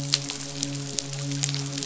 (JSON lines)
{"label": "biophony, midshipman", "recorder": "SoundTrap 500"}